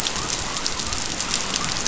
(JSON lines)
{"label": "biophony", "recorder": "SoundTrap 500"}